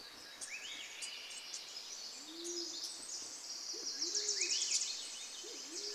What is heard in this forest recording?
Swainson's Thrush song, Wilson's Warbler call, Band-tailed Pigeon song, Pacific Wren song